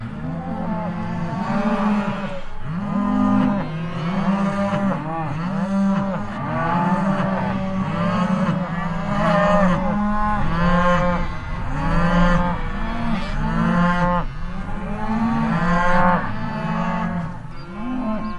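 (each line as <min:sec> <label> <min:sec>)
0:00.0 Cows mooing repeatedly with varying intensity. 0:18.4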